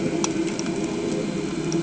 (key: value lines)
label: anthrophony, boat engine
recorder: HydroMoth